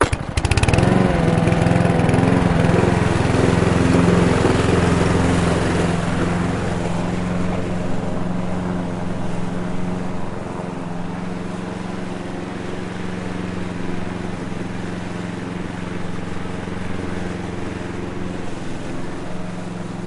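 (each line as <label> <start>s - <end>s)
A mower starts with a burst of sound, mows steadily, and then becomes quieter. 0.0s - 20.1s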